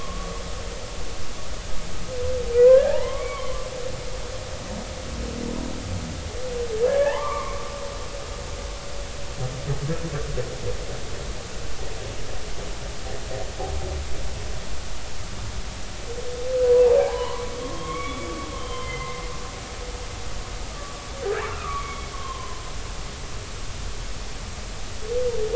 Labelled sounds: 2.5	3.5	humpback whale, 1.4 to 2.3 kHz
3.8	4.5	humpback whale, 0.80 to 1.2 kHz
7.0	8.2	humpback whale, 0.80 to 2.4 kHz
17.0	19.2	humpback whale, 0.80 to 3.5 kHz
20.7	22.6	humpback whale, 0.96 to 3.4 kHz

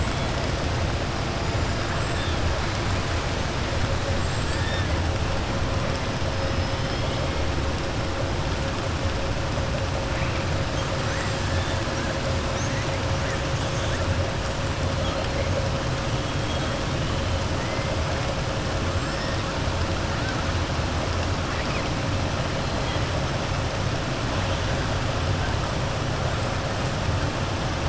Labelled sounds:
4.1	4.6	killer whale, southern resident, 7.0 to 7.8 kHz
6.4	7.2	killer whale, southern resident, 2.9 to 5.2 kHz

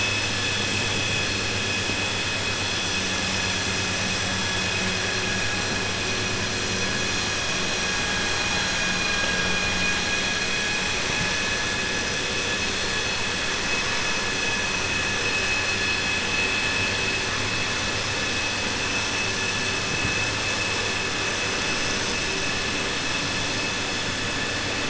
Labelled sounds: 8.8	9.9	vessel noise, 1.1 to 4.8 kHz

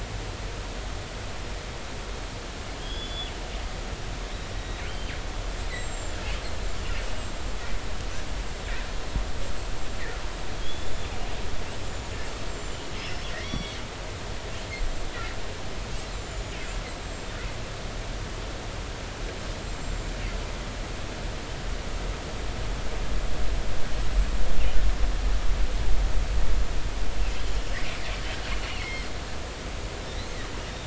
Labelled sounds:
2.8	3.3	killer whale, northern resident, G clan, GG subclan, call N28, 3.1 to 5.2 kHz
4.5	5.1	killer whale, northern resident, G clan, GI subclan, call N23i, 2.9 to 3.9 kHz
5.7	6.2	killer whale, northern resident, G clan, GI subclan, call N25, 7.1 to 8.0 kHz
7.2	8.7	killer whale, northern resident, G clan, GI subclan, call N25, 7.2 to 7.8 kHz
9.8	10.0	killer whale, northern resident, G clan, GI subclan, call N25, 7.3 to 7.5 kHz
10.6	10.9	killer whale, northern resident, G clan, GG subclan, call N28, 3.2 to 3.6 kHz
11.9	13.0	killer whale, northern resident, G clan, GI subclan, call N25, 6.9 to 7.6 kHz
13.0	13.8	killer whale, northern resident, G clan, GI subclan, call N23i, 1.8 to 5.7 kHz
14.8	15.1	killer whale, northern resident, G clan, GI subclan, call N25, 7.3 to 7.6 kHz
16.1	17.3	killer whale, northern resident, G clan, GI subclan, call N25, 6.9 to 7.6 kHz
19.6	20.2	killer whale, northern resident, G clan, GI subclan, call N25, 7.2 to 7.6 kHz
28.6	29.1	killer whale, northern resident, G clan, GG subclan, call N23ii, 1.9 to 5.4 kHz

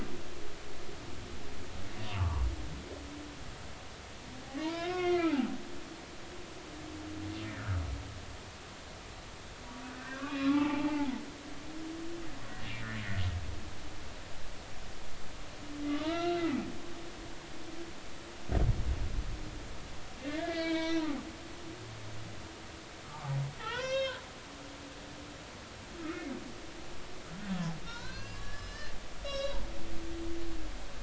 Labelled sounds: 2.0	2.4	humpback whale, 0.83 to 2.9 kHz
4.6	5.5	humpback whale, 0.80 to 5.2 kHz
7.4	7.8	humpback whale, 1.2 to 2.1 kHz
9.9	11.1	humpback whale, 0.80 to 2.6 kHz
15.9	17.3	humpback whale, 0.86 to 3.9 kHz
20.2	21.1	humpback whale, 0.90 to 4.4 kHz
23.0	23.3	humpback whale, 1.0 to 1.3 kHz
23.6	24.2	humpback whale, 0.80 to 6.5 kHz
26.0	26.3	humpback whale, 1.2 to 2.3 kHz
27.8	29.6	humpback whale, 0.86 to 5.7 kHz

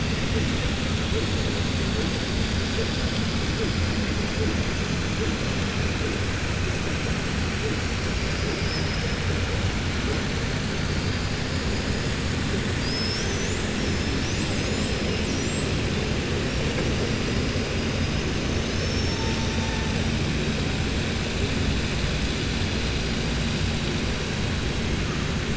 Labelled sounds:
18.6	19.7	killer whale, southern resident, 4.5 to 6.5 kHz

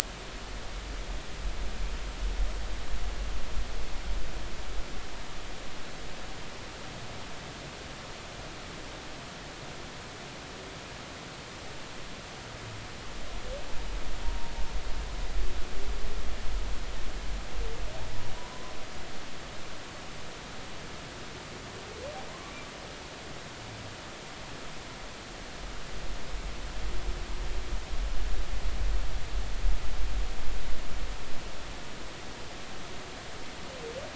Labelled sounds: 14.2	14.5	humpback whale, 0.90 to 1.1 kHz
18.4	18.7	humpback whale, 0.93 to 1.1 kHz

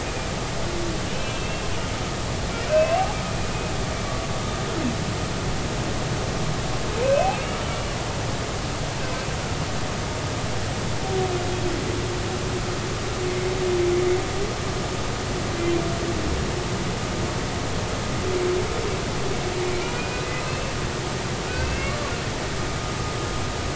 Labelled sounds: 1.1	1.6	humpback whale, 2.4 to 2.8 kHz
2.7	3.1	humpback whale, 2.5 to 2.8 kHz
7.0	7.5	humpback whale, 2.5 to 2.7 kHz
19.9	20.7	humpback whale, 2.4 to 2.7 kHz
21.5	22.1	humpback whale, 1.1 to 4.8 kHz

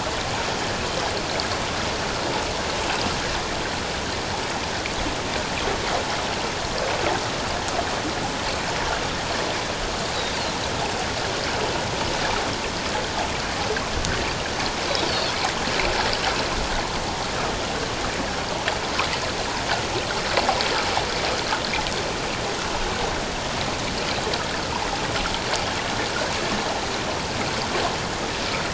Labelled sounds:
15.1	15.3	Pacific white-sided dolphin, 4.2 to 4.7 kHz

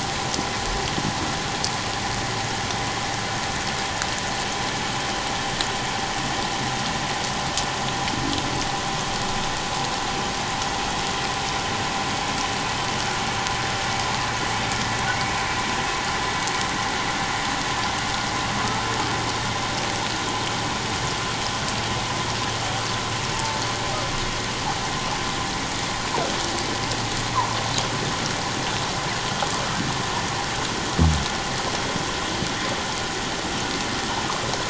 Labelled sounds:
18.6	18.9	water noise, 1.2 to 1.4 kHz
23.3	23.6	water noise, 0.84 to 0.94 kHz

